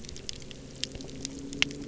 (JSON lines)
{"label": "anthrophony, boat engine", "recorder": "SoundTrap 300"}